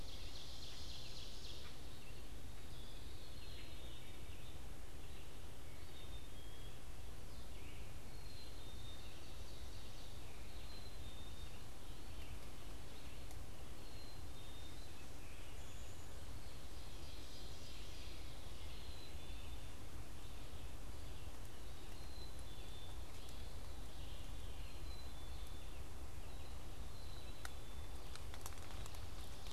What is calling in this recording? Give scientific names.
Seiurus aurocapilla, Quiscalus quiscula, Poecile atricapillus, Vireo olivaceus, Catharus fuscescens